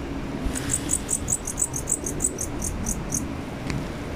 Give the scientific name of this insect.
Pholidoptera aptera